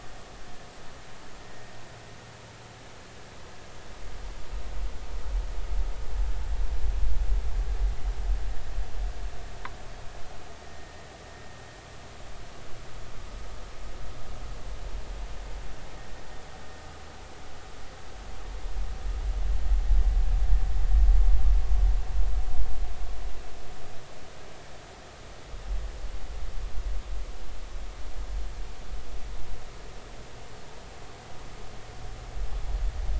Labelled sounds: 10.6	10.9	vessel noise, 1.8 to 1.9 kHz

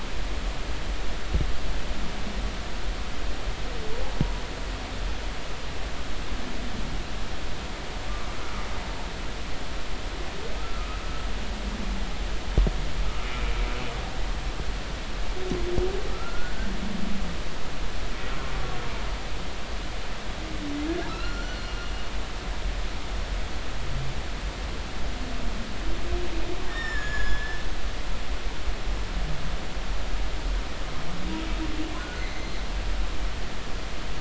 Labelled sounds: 10.6	10.9	humpback whale, 1.2 to 1.4 kHz
16.1	16.7	humpback whale, 1.2 to 1.6 kHz
21.1	21.9	humpback whale, 1.2 to 4.3 kHz
26.7	27.6	humpback whale, 1.6 to 6.9 kHz
32.0	32.5	humpback whale, 1.4 to 2.2 kHz

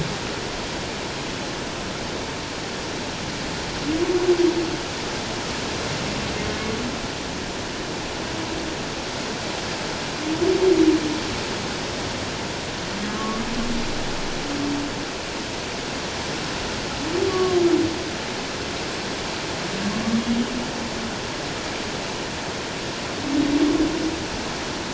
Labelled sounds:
13.2	13.5	humpback whale, 1.1 to 1.2 kHz
17.3	17.6	humpback whale, 1.0 to 1.2 kHz

